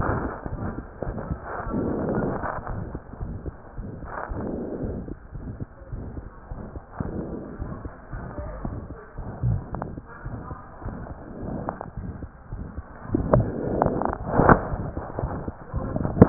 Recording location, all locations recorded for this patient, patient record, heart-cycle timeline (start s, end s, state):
mitral valve (MV)
aortic valve (AV)+pulmonary valve (PV)+tricuspid valve (TV)+mitral valve (MV)
#Age: Child
#Sex: Male
#Height: 89.0 cm
#Weight: 11.6 kg
#Pregnancy status: False
#Murmur: Present
#Murmur locations: aortic valve (AV)+mitral valve (MV)+pulmonary valve (PV)+tricuspid valve (TV)
#Most audible location: aortic valve (AV)
#Systolic murmur timing: Mid-systolic
#Systolic murmur shape: Diamond
#Systolic murmur grading: III/VI or higher
#Systolic murmur pitch: High
#Systolic murmur quality: Harsh
#Diastolic murmur timing: nan
#Diastolic murmur shape: nan
#Diastolic murmur grading: nan
#Diastolic murmur pitch: nan
#Diastolic murmur quality: nan
#Outcome: Abnormal
#Campaign: 2015 screening campaign
0.00	5.90	unannotated
5.90	6.01	S1
6.01	6.14	systole
6.14	6.24	S2
6.24	6.50	diastole
6.50	6.60	S1
6.60	6.72	systole
6.72	6.82	S2
6.82	7.04	diastole
7.04	7.14	S1
7.14	7.30	systole
7.30	7.40	S2
7.40	7.57	diastole
7.57	7.72	S1
7.72	7.80	systole
7.80	7.90	S2
7.90	8.09	diastole
8.09	8.24	S1
8.24	8.36	systole
8.36	8.50	S2
8.50	8.64	diastole
8.64	8.73	S1
8.73	8.88	systole
8.88	9.00	S2
9.00	9.16	diastole
9.16	9.27	S1
9.27	16.29	unannotated